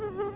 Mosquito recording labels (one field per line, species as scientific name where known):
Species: Anopheles quadriannulatus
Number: one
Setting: insect culture